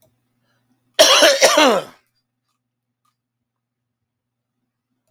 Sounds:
Cough